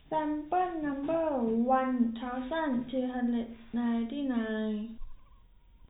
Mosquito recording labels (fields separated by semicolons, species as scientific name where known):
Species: no mosquito; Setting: cup